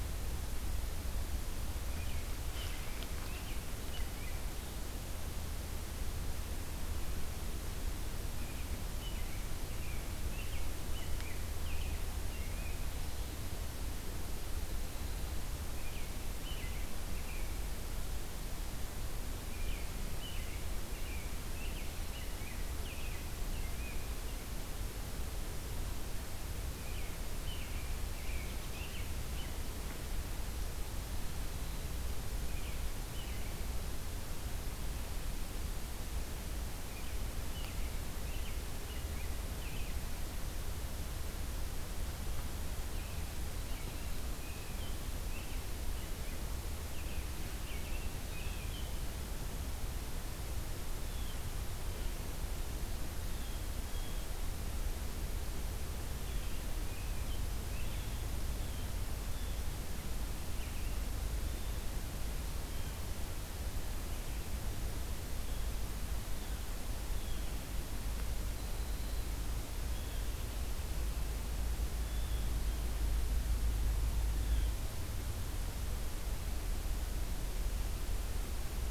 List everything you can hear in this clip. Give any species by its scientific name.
Turdus migratorius, Cyanocitta cristata